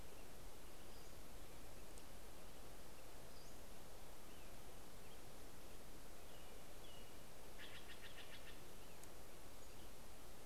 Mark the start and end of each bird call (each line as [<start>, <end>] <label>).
[0.00, 10.14] American Robin (Turdus migratorius)
[0.64, 1.54] Pacific-slope Flycatcher (Empidonax difficilis)
[2.74, 4.04] Pacific-slope Flycatcher (Empidonax difficilis)
[7.24, 8.64] Steller's Jay (Cyanocitta stelleri)